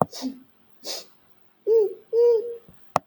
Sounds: Sniff